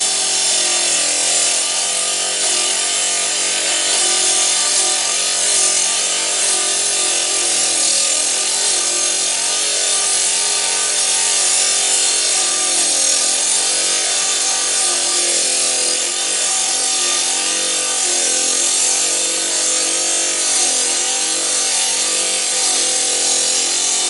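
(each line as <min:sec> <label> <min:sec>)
0:00.0 A table saw is cutting a slab. 0:24.1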